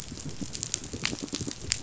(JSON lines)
{"label": "biophony, pulse", "recorder": "SoundTrap 500"}